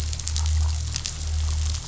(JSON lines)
{"label": "anthrophony, boat engine", "recorder": "SoundTrap 500"}